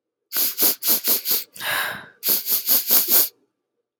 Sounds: Sniff